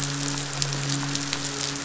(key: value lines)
label: biophony, midshipman
recorder: SoundTrap 500